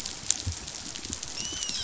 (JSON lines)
{"label": "biophony, dolphin", "recorder": "SoundTrap 500"}